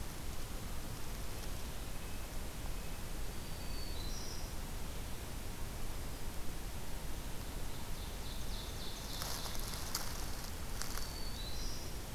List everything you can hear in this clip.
Red-breasted Nuthatch, Black-throated Green Warbler, Ovenbird